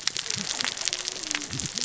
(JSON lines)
{"label": "biophony, cascading saw", "recorder": "SoundTrap 600 or HydroMoth"}